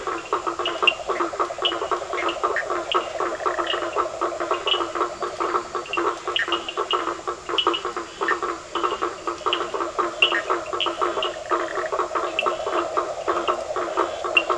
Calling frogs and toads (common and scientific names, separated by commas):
Scinax perereca, Leptodactylus latrans, blacksmith tree frog (Boana faber), yellow cururu toad (Rhinella icterica), Cochran's lime tree frog (Sphaenorhynchus surdus)